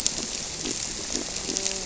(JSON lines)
{"label": "biophony", "recorder": "SoundTrap 300"}
{"label": "biophony, grouper", "recorder": "SoundTrap 300"}